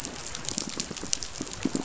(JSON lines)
{"label": "biophony, pulse", "recorder": "SoundTrap 500"}